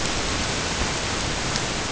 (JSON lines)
{"label": "ambient", "recorder": "HydroMoth"}